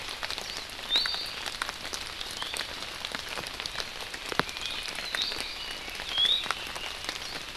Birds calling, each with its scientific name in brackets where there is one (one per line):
Iiwi (Drepanis coccinea)